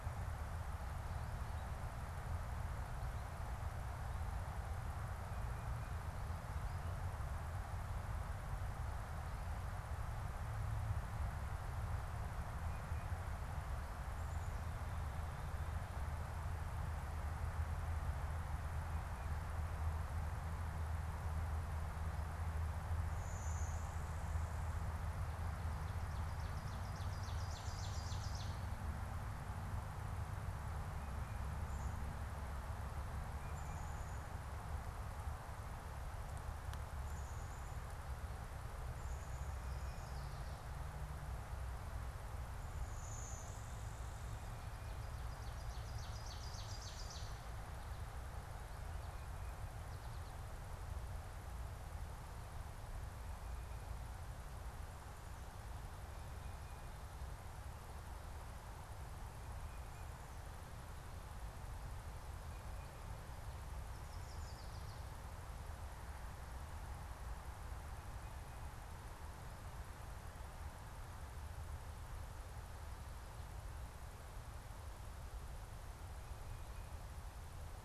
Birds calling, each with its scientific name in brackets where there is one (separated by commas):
Blue-winged Warbler (Vermivora cyanoptera), Black-capped Chickadee (Poecile atricapillus), unidentified bird, Tufted Titmouse (Baeolophus bicolor), Ovenbird (Seiurus aurocapilla)